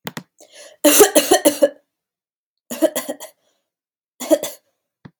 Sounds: Cough